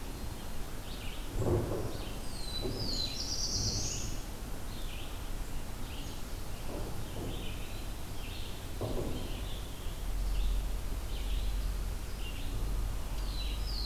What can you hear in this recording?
Red-eyed Vireo, Black-throated Blue Warbler, Scarlet Tanager